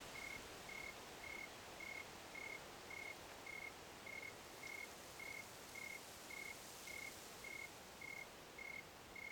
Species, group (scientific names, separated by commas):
Oecanthus fultoni, Orthoptera